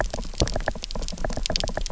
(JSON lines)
{"label": "biophony", "recorder": "SoundTrap 300"}